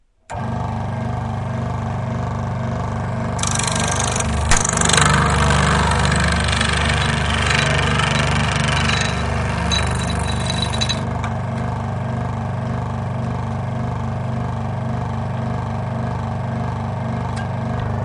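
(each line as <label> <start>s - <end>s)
A cutting saw is cutting through a material. 0.0s - 18.0s
A sharp, continuous, metallic sound with a high-pitched screeching noise as a blade cuts. 0.0s - 18.0s
The sound remains steady with occasional pitch variations as the blade moves through the material. 0.0s - 18.0s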